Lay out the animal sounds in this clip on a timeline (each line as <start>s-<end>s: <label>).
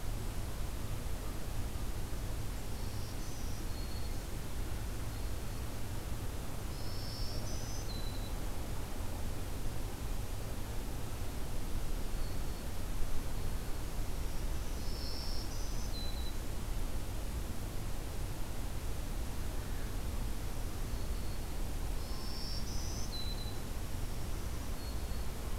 2.6s-4.2s: Black-throated Green Warbler (Setophaga virens)
6.5s-8.3s: Black-throated Green Warbler (Setophaga virens)
11.9s-12.6s: Black-throated Green Warbler (Setophaga virens)
14.1s-16.5s: Black-throated Green Warbler (Setophaga virens)
20.5s-25.3s: Black-throated Green Warbler (Setophaga virens)